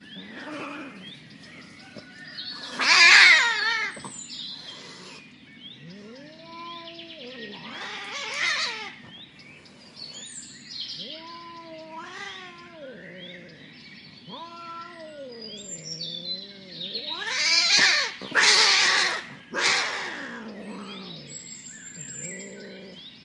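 Soft and melodic birdsong with occasional variations in the background. 0:00.0 - 0:23.2
Faint sounds of cats fighting. 0:00.3 - 0:01.2
A cat fights with hissing, growling, and scratching sounds. 0:02.3 - 0:04.7
A cat hisses in the distance with a sharp, breathy sound. 0:07.5 - 0:09.0
A cat yowls faintly with a soft, drawn-out, plaintive tone. 0:11.3 - 0:16.5
Cats are fighting, hissing, growling, and scratching. 0:16.8 - 0:20.6

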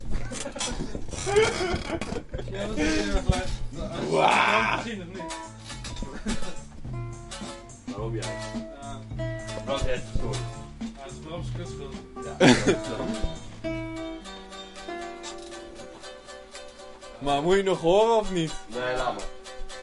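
People are speaking. 0:00.0 - 0:19.8
A man is laughing. 0:01.2 - 0:03.6
Music is playing in the background. 0:05.4 - 0:19.8
A man laughs. 0:06.3 - 0:07.6
A man laughs. 0:12.2 - 0:13.3

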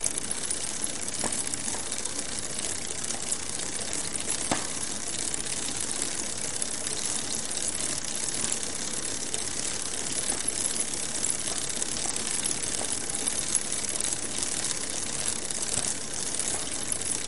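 A bike chain and sprocket spinning. 0:00.0 - 0:17.3
A loud thump is heard. 0:04.5 - 0:04.6

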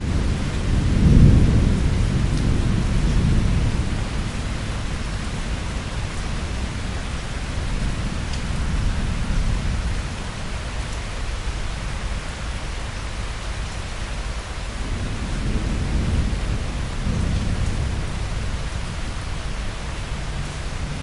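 Thunder rumbles in the distance and fades out. 0:00.0 - 0:10.3
Thunder rumbling quietly in the distance. 0:00.0 - 0:21.0
Rain falling steadily. 0:15.0 - 0:18.5

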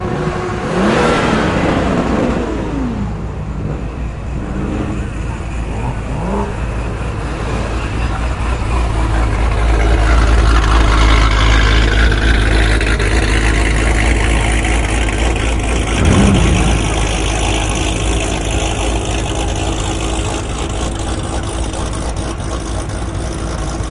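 An engine revs. 0:00.0 - 0:03.3
The sound of an approaching vehicle with a humming motor. 0:03.4 - 0:23.9

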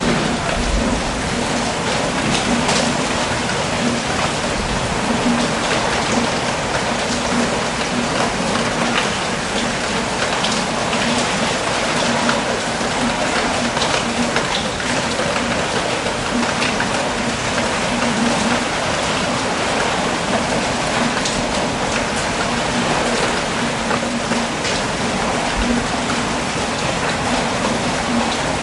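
Heavy rain falling on a roof outdoors. 0:00.0 - 0:28.6

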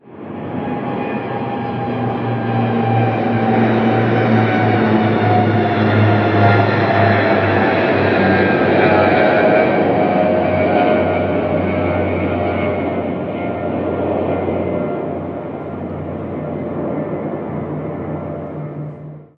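An airplane flies overhead. 0:00.0 - 0:19.3

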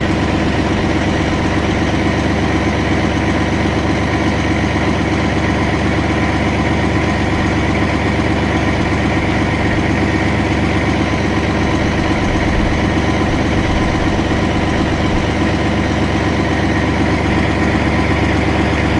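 An industrial truck's motor runs steadily, creating an annoying noise. 0:00.0 - 0:19.0

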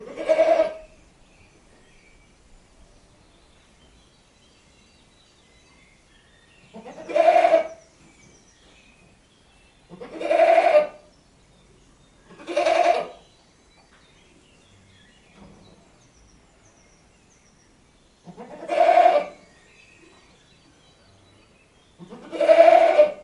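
A goat bleats with a slightly muffled sound. 0:00.0 - 0:01.0
Birds chirping quietly in the distance. 0:01.0 - 0:06.7
A goat bleats with a slightly muffled sound. 0:06.7 - 0:07.8
Birds chirping quietly in the distance. 0:07.8 - 0:09.9
A goat bleats with a slightly muffled sound. 0:09.9 - 0:11.0
Birds chirping quietly in the distance. 0:11.0 - 0:12.3
A goat bleats with a slightly muffled sound. 0:12.3 - 0:13.3
Birds chirping quietly in the distance. 0:13.3 - 0:18.3
A goat bleats with a slightly muffled sound. 0:18.3 - 0:19.4
Birds chirping quietly in the distance. 0:19.4 - 0:22.1
A goat bleats with a slightly muffled sound. 0:22.0 - 0:23.2

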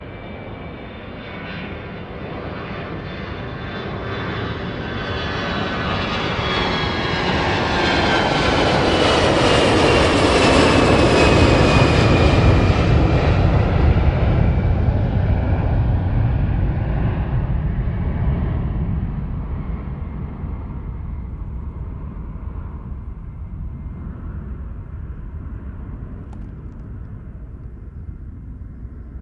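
An airplane is approaching. 0:00.1 - 0:06.9
An airplane flies close by. 0:06.9 - 0:19.6
An airplane flying away. 0:19.5 - 0:29.2

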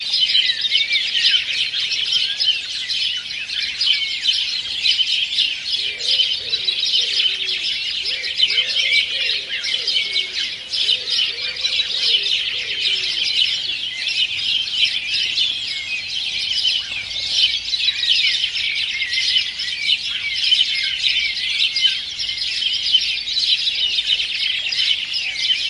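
A bird chirps loudly and repeatedly at dawn. 0:00.0 - 0:25.7

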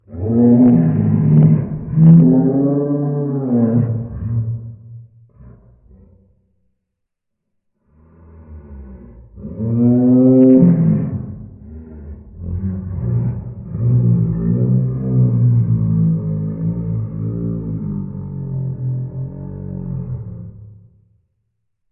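A creature howls repeatedly in a low register. 0:00.1 - 0:05.2
A creature howls repeatedly in a low register. 0:08.0 - 0:11.7
A creature growls repeatedly with a low pitch. 0:11.8 - 0:20.8

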